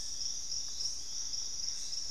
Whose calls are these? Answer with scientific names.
Cercomacra cinerascens, Crypturellus soui, Querula purpurata